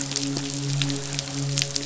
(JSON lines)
{"label": "biophony, midshipman", "recorder": "SoundTrap 500"}